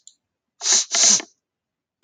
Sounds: Sniff